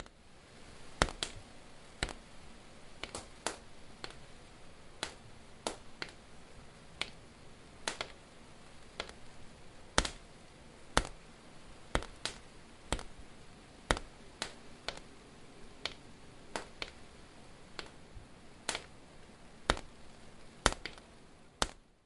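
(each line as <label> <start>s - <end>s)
Water dripping with occasional drops. 0.8s - 22.1s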